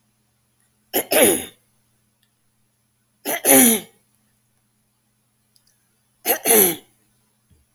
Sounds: Throat clearing